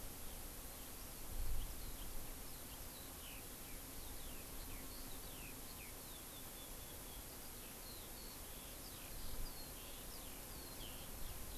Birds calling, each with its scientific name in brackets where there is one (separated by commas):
Eurasian Skylark (Alauda arvensis)